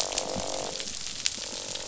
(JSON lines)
{"label": "biophony, croak", "recorder": "SoundTrap 500"}